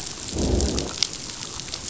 {"label": "biophony, growl", "recorder": "SoundTrap 500"}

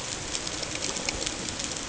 {"label": "ambient", "recorder": "HydroMoth"}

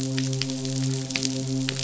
{"label": "biophony, midshipman", "recorder": "SoundTrap 500"}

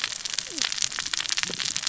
{"label": "biophony, cascading saw", "recorder": "SoundTrap 600 or HydroMoth"}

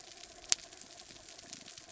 {"label": "anthrophony, mechanical", "recorder": "SoundTrap 300"}
{"label": "biophony", "recorder": "SoundTrap 300"}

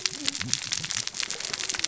{"label": "biophony, cascading saw", "recorder": "SoundTrap 600 or HydroMoth"}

